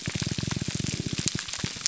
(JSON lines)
{"label": "biophony, pulse", "recorder": "SoundTrap 300"}